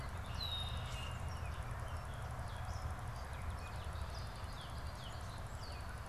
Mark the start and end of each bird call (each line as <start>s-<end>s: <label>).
0.0s-1.3s: Red-winged Blackbird (Agelaius phoeniceus)
1.5s-6.1s: Gray Catbird (Dumetella carolinensis)